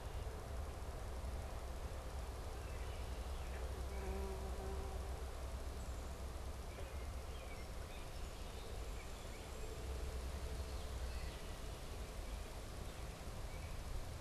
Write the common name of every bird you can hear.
American Robin, Common Yellowthroat